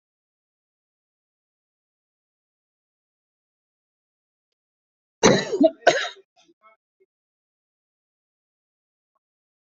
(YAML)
expert_labels:
- quality: good
  cough_type: wet
  dyspnea: false
  wheezing: false
  stridor: false
  choking: false
  congestion: false
  nothing: true
  diagnosis: upper respiratory tract infection
  severity: mild
age: 36
gender: male
respiratory_condition: false
fever_muscle_pain: false
status: symptomatic